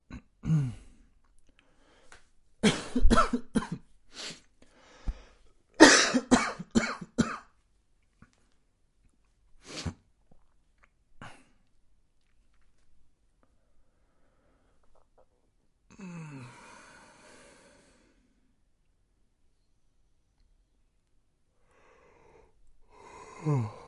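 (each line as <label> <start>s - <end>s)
A man coughs unpleasantly while trying to hold it in. 0.0s - 1.1s
A man coughing repeatedly in a steady pattern. 2.6s - 3.8s
A man sniffs briefly. 4.1s - 4.4s
A man breathes hastily. 5.0s - 5.2s
A man coughs lightly in a decreasing pattern. 5.8s - 7.5s
A man is sniffling repeatedly. 9.6s - 11.5s
A man yawns tiredly. 21.7s - 23.9s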